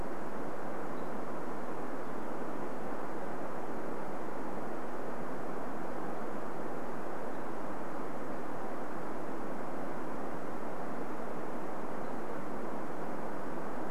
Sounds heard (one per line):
unidentified bird chip note